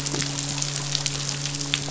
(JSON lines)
{"label": "biophony, midshipman", "recorder": "SoundTrap 500"}